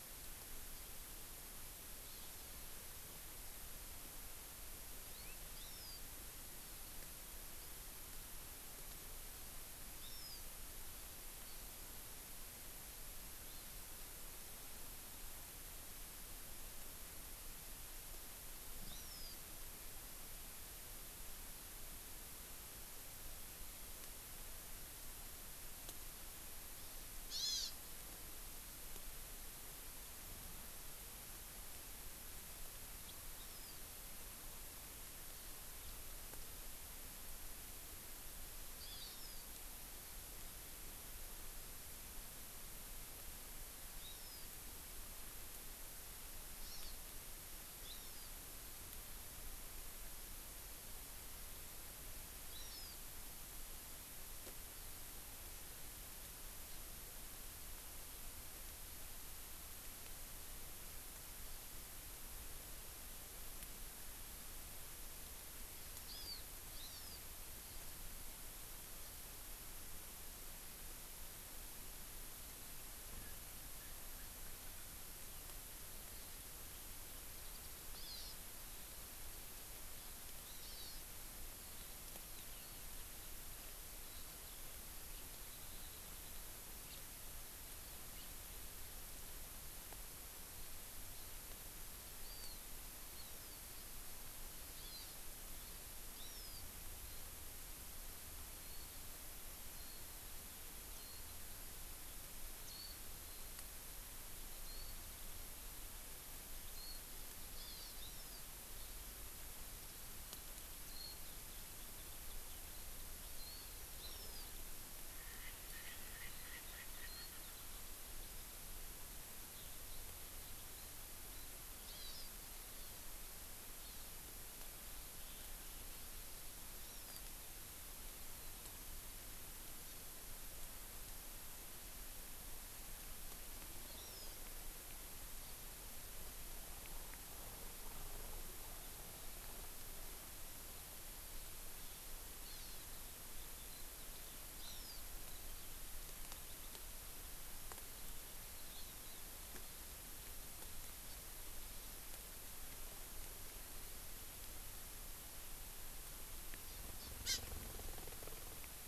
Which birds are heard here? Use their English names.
Hawaii Amakihi, Erckel's Francolin, Warbling White-eye, Eurasian Skylark, House Finch